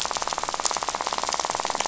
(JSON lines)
{"label": "biophony, rattle", "recorder": "SoundTrap 500"}